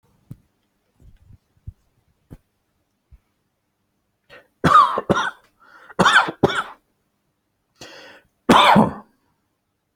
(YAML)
expert_labels:
- quality: good
  cough_type: dry
  dyspnea: false
  wheezing: false
  stridor: false
  choking: false
  congestion: false
  nothing: true
  diagnosis: healthy cough
  severity: pseudocough/healthy cough
age: 42
gender: male
respiratory_condition: false
fever_muscle_pain: false
status: healthy